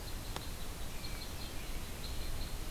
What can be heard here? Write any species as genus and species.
Dryobates pubescens